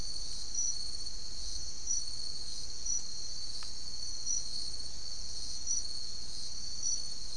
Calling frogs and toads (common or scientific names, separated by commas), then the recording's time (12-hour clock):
none
1:15am